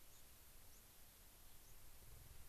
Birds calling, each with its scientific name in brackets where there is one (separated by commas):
White-crowned Sparrow (Zonotrichia leucophrys), Gray-crowned Rosy-Finch (Leucosticte tephrocotis)